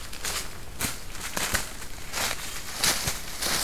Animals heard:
forest ambience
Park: Katahdin Woods and Waters National Monument